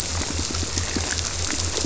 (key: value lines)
label: biophony
recorder: SoundTrap 300